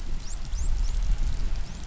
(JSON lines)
{"label": "biophony, dolphin", "recorder": "SoundTrap 500"}